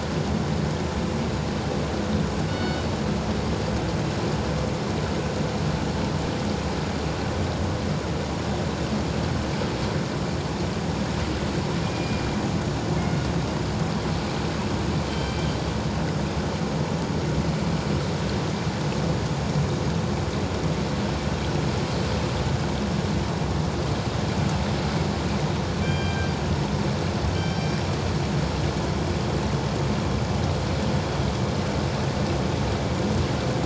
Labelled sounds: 2.5	2.9	killer whale, northern resident, G clan, 1.4 to 4.5 kHz
11.8	12.2	killer whale, northern resident, G clan, 2.4 to 2.5 kHz
15.1	15.4	killer whale, northern resident, G clan, 3.1 to 4.7 kHz
25.8	26.3	killer whale, northern resident, G clan, 1.5 to 4.8 kHz
27.3	27.7	killer whale, northern resident, G clan, 3.0 to 3.2 kHz

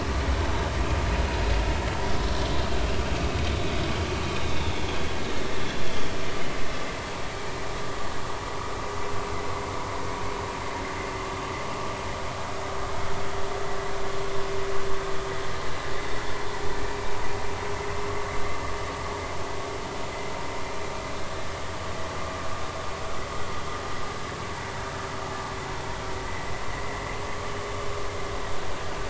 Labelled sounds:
5.4	6.1	vessel noise, 3.1 to 3.8 kHz

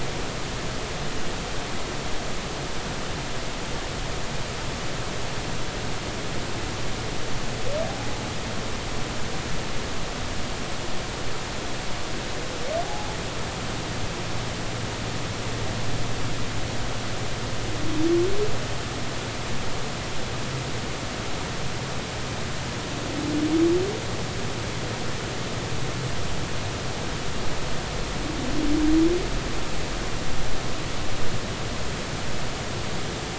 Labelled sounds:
7.9	8.2	humpback whale, 0.80 to 0.86 kHz
12.8	13.1	humpback whale, 0.80 to 0.90 kHz

